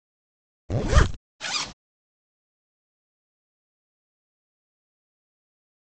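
At the start, there is the sound of a zipper. Then, about 1 second in, a zipper can be heard.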